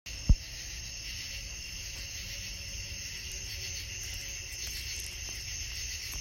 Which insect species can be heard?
Pterophylla camellifolia